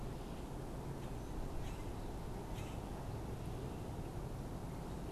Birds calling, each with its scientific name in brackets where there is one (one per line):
Common Grackle (Quiscalus quiscula)